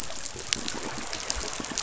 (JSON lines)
{"label": "biophony", "recorder": "SoundTrap 500"}